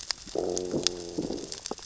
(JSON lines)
{"label": "biophony, growl", "recorder": "SoundTrap 600 or HydroMoth"}